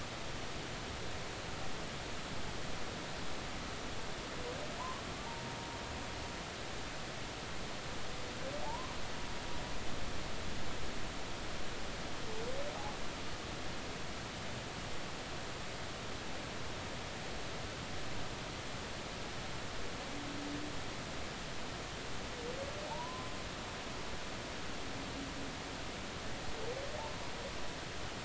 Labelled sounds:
5.3	5.6	humpback whale, 0.83 to 0.99 kHz
8.6	8.9	humpback whale, 0.80 to 1.2 kHz
22.8	23.3	humpback whale, 0.80 to 1.1 kHz

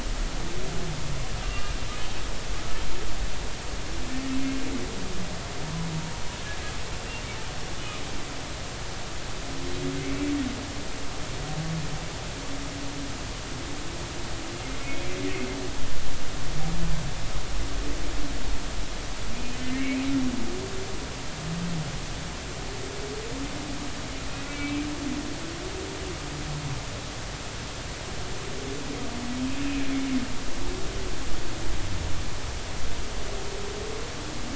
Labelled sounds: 1.4	1.8	humpback whale, 1.1 to 2.9 kHz
10.0	10.3	humpback whale, 2.0 to 2.4 kHz
19.3	20.1	humpback whale, 2.0 to 3.1 kHz
24.5	24.9	humpback whale, 2.2 to 2.4 kHz

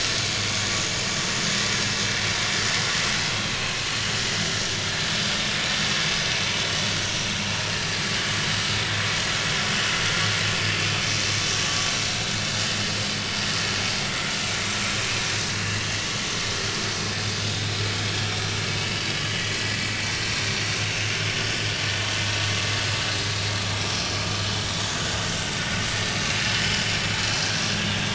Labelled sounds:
3.5	3.9	vessel noise, 2.4 to 2.7 kHz
6.3	6.6	vessel noise, 5.9 to 6.1 kHz
15.1	15.8	vessel noise, 2.7 to 6.0 kHz
19.4	19.9	vessel noise, 1.9 to 2.1 kHz
20.9	21.2	vessel noise, 2.6 to 2.8 kHz
25.9	26.8	vessel noise, 2.9 to 4.9 kHz

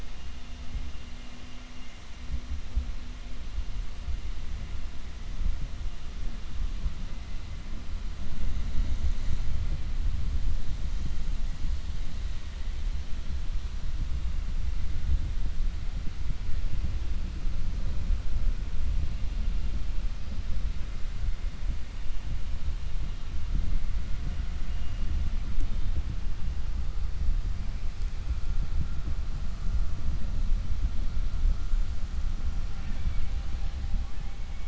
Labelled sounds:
32.7	33.3	killer whale, 0.55 to 3.6 kHz

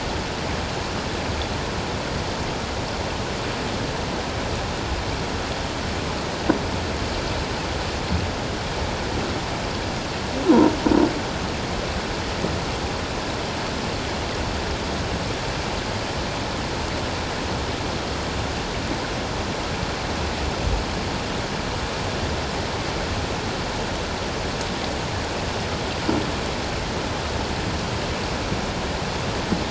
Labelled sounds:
10.4	10.7	croaking sound likely from a nearby submerged object, 0.88 to 1.1 kHz

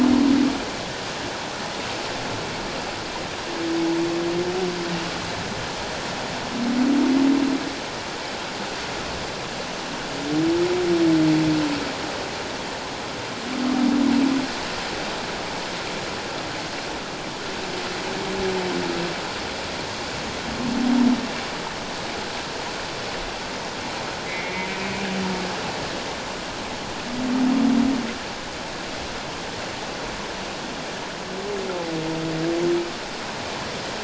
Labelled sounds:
24.3	25.0	humpback whale, 1.9 to 2.6 kHz

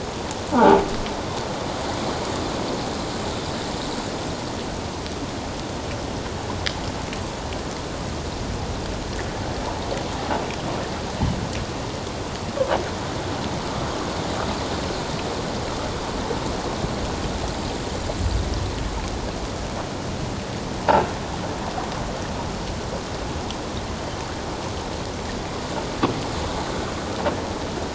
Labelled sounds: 0.5	0.8	croaking sound likely from a nearby submerged object, 0.78 to 1.1 kHz

